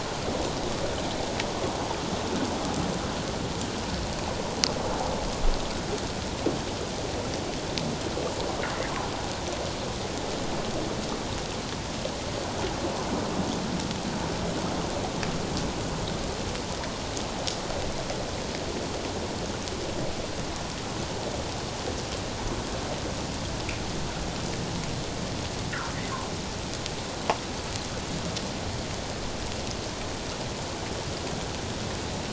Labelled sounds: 25.7	26.0	fish, 1.2 to 1.6 kHz

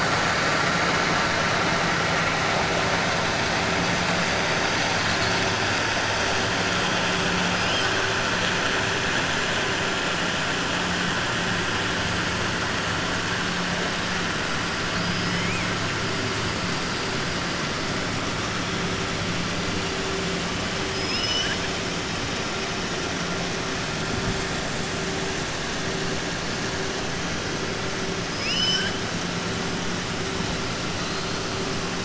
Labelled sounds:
20.8	21.6	killer whale, 1.5 to 6.0 kHz
28.2	29.0	killer whale, 1.5 to 7.6 kHz

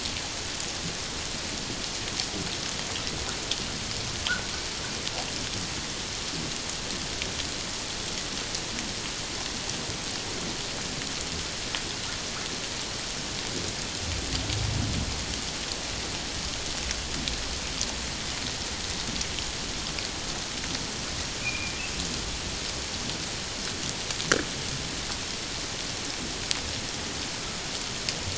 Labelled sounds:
21.4	21.7	humpback whale, 2.2 to 2.6 kHz

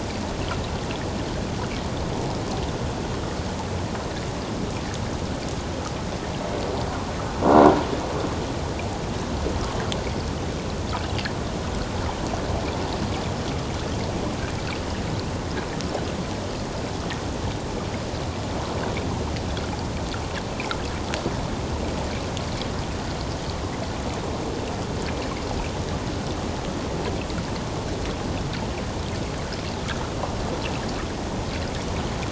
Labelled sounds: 20.5	20.8	water noise, 2.0 to 2.7 kHz

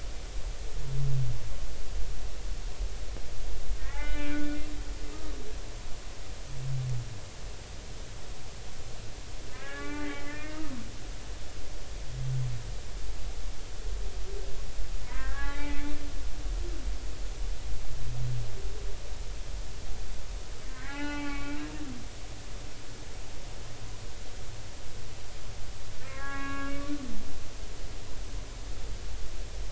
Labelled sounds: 3.8	4.5	humpback whale, 1.3 to 3.0 kHz
9.5	10.8	humpback whale, 1.1 to 2.7 kHz
15.0	16.0	humpback whale, 0.80 to 2.5 kHz
20.7	21.7	humpback whale, 0.80 to 3.0 kHz
22.1	22.3	humpback whale, 3.1 to 3.2 kHz
26.1	26.7	humpback whale, 0.80 to 2.8 kHz

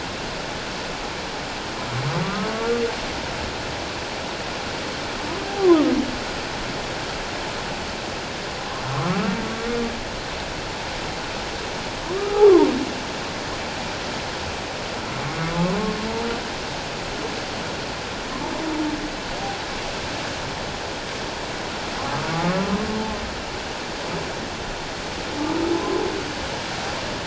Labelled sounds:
2.2	2.5	humpback whale, 1.1 to 1.3 kHz
5.4	5.7	humpback whale, 0.78 to 0.84 kHz
8.9	9.4	humpback whale, 1.0 to 1.5 kHz
12.1	12.7	humpback whale, 0.88 to 1.3 kHz
15.4	15.7	humpback whale, 1.1 to 1.3 kHz
22.3	22.7	humpback whale, 1.1 to 1.4 kHz

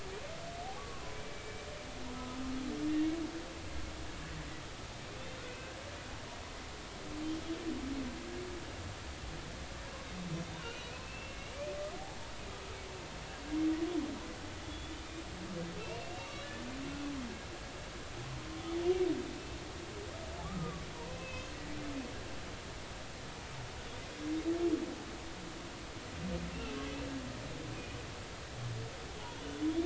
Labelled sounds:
0.8	1.7	humpback whale, 1.1 to 2.4 kHz
5.2	5.4	humpback whale, 3.4 to 3.8 kHz
10.6	11.6	humpback whale, 2.1 to 3.0 kHz
14.6	15.0	humpback whale, 3.4 to 3.6 kHz
16.0	16.6	humpback whale, 2.6 to 2.9 kHz
20.4	21.5	humpback whale, 1.1 to 3.2 kHz
26.5	26.8	humpback whale, 2.6 to 2.8 kHz
29.2	29.4	humpback whale, 0.80 to 1.0 kHz

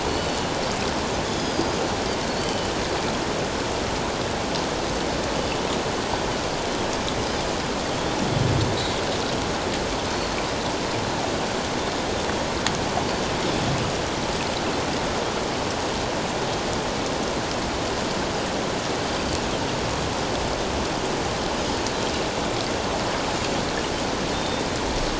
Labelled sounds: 0.0	1.8	Pacific white-sided dolphin, 2.9 to 6.9 kHz
2.3	2.7	Pacific white-sided dolphin, 2.9 to 4.7 kHz
19.1	19.4	Pacific white-sided dolphin, 4.5 to 4.8 kHz
24.3	24.6	Pacific white-sided dolphin, 3.5 to 3.7 kHz

